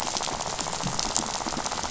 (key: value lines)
label: biophony, rattle
recorder: SoundTrap 500